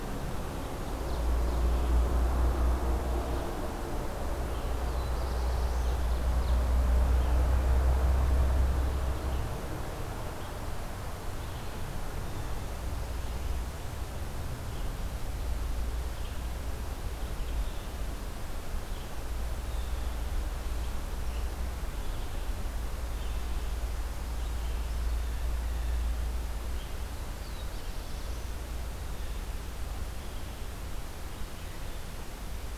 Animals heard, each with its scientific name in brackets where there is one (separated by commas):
Black-throated Blue Warbler (Setophaga caerulescens), Ovenbird (Seiurus aurocapilla), Blue Jay (Cyanocitta cristata), Red-eyed Vireo (Vireo olivaceus)